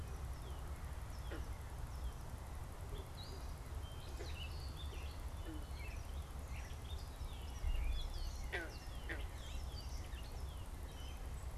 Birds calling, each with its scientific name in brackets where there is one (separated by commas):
Northern Cardinal (Cardinalis cardinalis), Gray Catbird (Dumetella carolinensis)